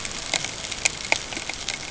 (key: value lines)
label: ambient
recorder: HydroMoth